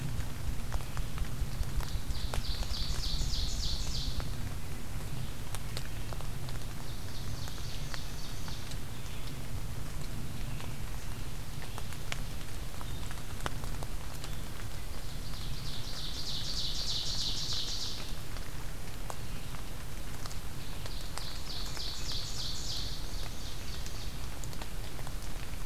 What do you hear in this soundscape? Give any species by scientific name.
Bonasa umbellus, Vireo olivaceus, Seiurus aurocapilla